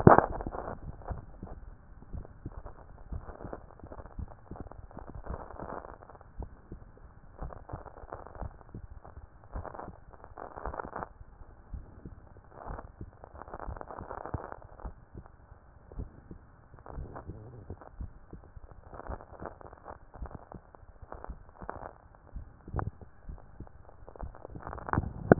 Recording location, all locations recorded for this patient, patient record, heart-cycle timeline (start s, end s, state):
mitral valve (MV)
pulmonary valve (PV)+tricuspid valve (TV)+mitral valve (MV)
#Age: Child
#Sex: Male
#Height: 148.0 cm
#Weight: 44.4 kg
#Pregnancy status: False
#Murmur: Absent
#Murmur locations: nan
#Most audible location: nan
#Systolic murmur timing: nan
#Systolic murmur shape: nan
#Systolic murmur grading: nan
#Systolic murmur pitch: nan
#Systolic murmur quality: nan
#Diastolic murmur timing: nan
#Diastolic murmur shape: nan
#Diastolic murmur grading: nan
#Diastolic murmur pitch: nan
#Diastolic murmur quality: nan
#Outcome: Normal
#Campaign: 2014 screening campaign
0.00	5.19	unannotated
5.19	5.28	diastole
5.28	5.40	S1
5.40	5.62	systole
5.62	5.72	S2
5.72	6.38	diastole
6.38	6.50	S1
6.50	6.70	systole
6.70	6.80	S2
6.80	7.40	diastole
7.40	7.54	S1
7.54	7.72	systole
7.72	7.82	S2
7.82	8.40	diastole
8.40	8.54	S1
8.54	8.74	systole
8.74	8.84	S2
8.84	9.54	diastole
9.54	9.66	S1
9.66	9.86	systole
9.86	9.96	S2
9.96	10.64	diastole
10.64	10.76	S1
10.76	10.98	systole
10.98	11.08	S2
11.08	11.72	diastole
11.72	11.84	S1
11.84	12.04	systole
12.04	12.14	S2
12.14	12.68	diastole
12.68	12.80	S1
12.80	13.00	systole
13.00	13.10	S2
13.10	13.66	diastole
13.66	25.39	unannotated